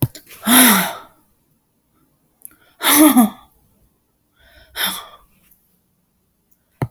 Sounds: Sigh